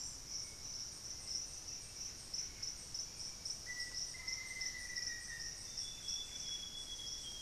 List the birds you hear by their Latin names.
Cantorchilus leucotis, Turdus hauxwelli, Formicarius analis, Cyanoloxia rothschildii